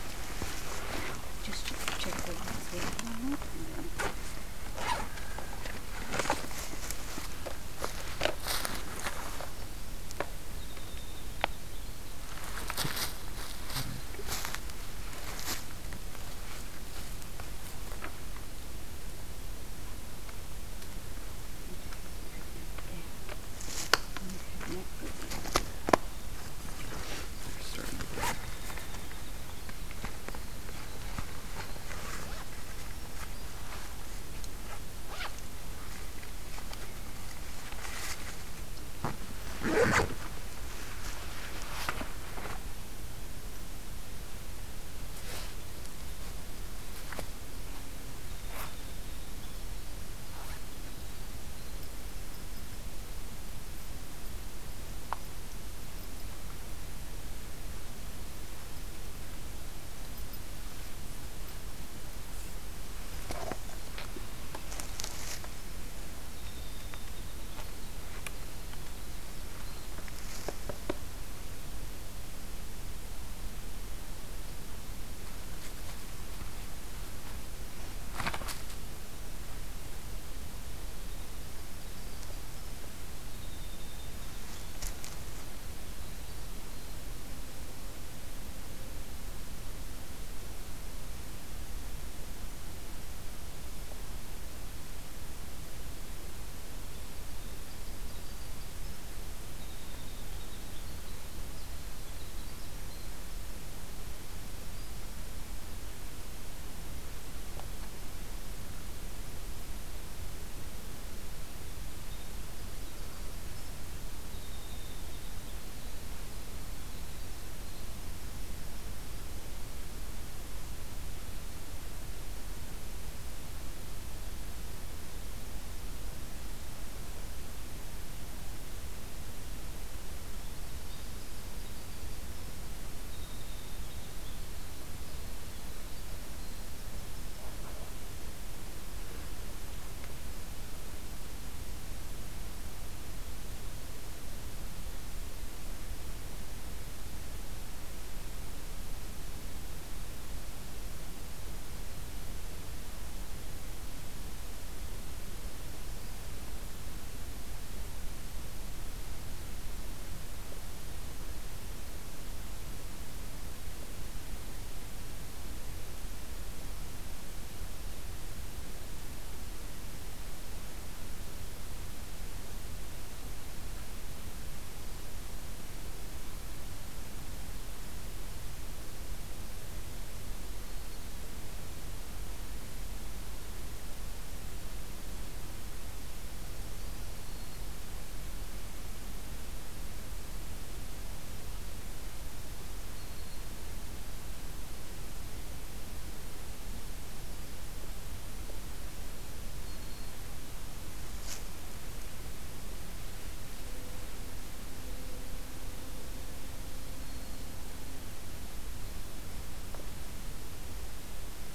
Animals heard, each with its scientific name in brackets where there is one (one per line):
Black-throated Green Warbler (Setophaga virens)
Winter Wren (Troglodytes hiemalis)